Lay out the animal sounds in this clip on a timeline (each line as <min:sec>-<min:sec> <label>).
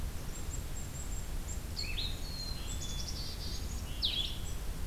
0:00.3-0:03.8 Black-capped Chickadee (Poecile atricapillus)
0:01.7-0:02.2 Blue-headed Vireo (Vireo solitarius)
0:03.8-0:04.6 Blue-headed Vireo (Vireo solitarius)